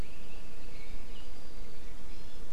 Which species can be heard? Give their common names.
Iiwi